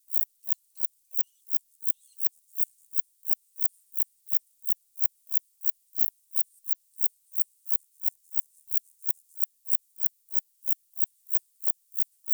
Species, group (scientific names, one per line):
Metrioptera saussuriana
Orthoptera